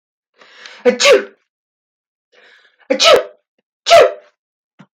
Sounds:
Sneeze